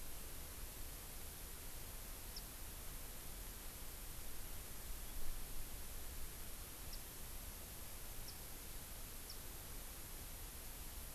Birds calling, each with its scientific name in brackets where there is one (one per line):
Warbling White-eye (Zosterops japonicus)